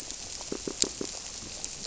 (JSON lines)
{"label": "biophony, squirrelfish (Holocentrus)", "recorder": "SoundTrap 300"}